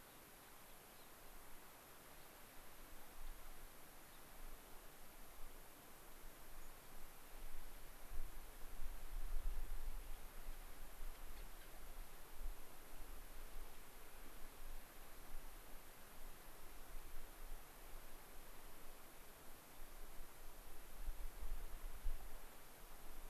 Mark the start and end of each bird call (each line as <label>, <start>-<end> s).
Gray-crowned Rosy-Finch (Leucosticte tephrocotis), 0.0-1.1 s
unidentified bird, 6.6-6.7 s
Gray-crowned Rosy-Finch (Leucosticte tephrocotis), 11.1-11.7 s